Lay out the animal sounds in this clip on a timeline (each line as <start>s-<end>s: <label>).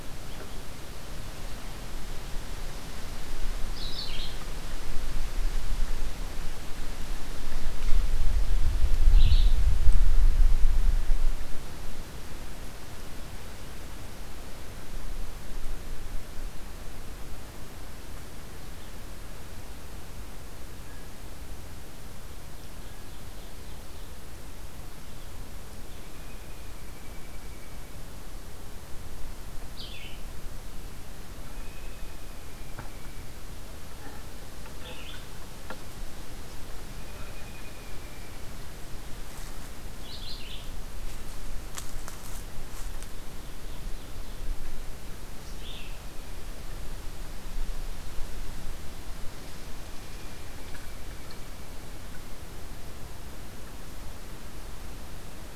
0.0s-9.7s: Red-eyed Vireo (Vireo olivaceus)
21.7s-24.5s: Ovenbird (Seiurus aurocapilla)
26.0s-28.0s: American Robin (Turdus migratorius)
28.7s-46.3s: Red-eyed Vireo (Vireo olivaceus)
31.3s-33.3s: American Robin (Turdus migratorius)
36.6s-38.5s: American Robin (Turdus migratorius)
42.5s-44.8s: Ovenbird (Seiurus aurocapilla)
49.7s-51.8s: American Robin (Turdus migratorius)